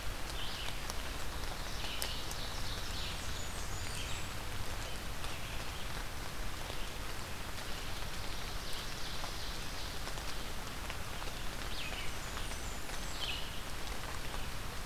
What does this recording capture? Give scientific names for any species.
Vireo olivaceus, Seiurus aurocapilla, Setophaga fusca